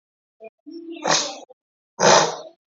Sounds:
Sniff